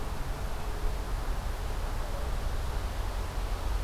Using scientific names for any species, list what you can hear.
forest ambience